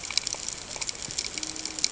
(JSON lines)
{"label": "ambient", "recorder": "HydroMoth"}